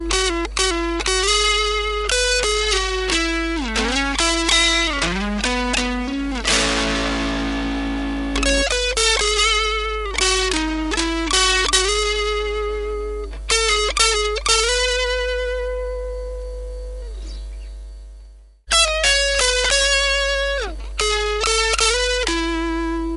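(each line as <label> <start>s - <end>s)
A guitar solo is being played. 0.0s - 23.2s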